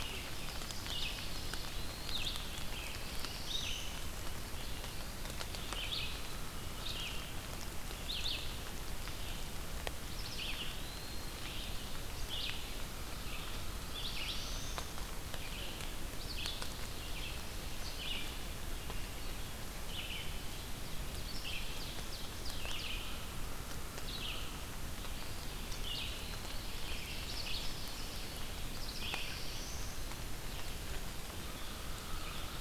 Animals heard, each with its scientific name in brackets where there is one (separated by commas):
Black-throated Blue Warbler (Setophaga caerulescens), Red-eyed Vireo (Vireo olivaceus), Ovenbird (Seiurus aurocapilla), Eastern Wood-Pewee (Contopus virens)